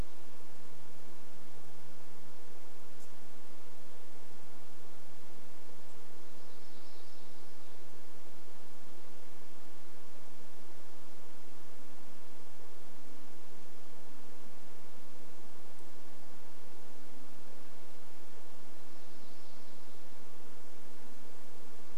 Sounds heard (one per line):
warbler song
airplane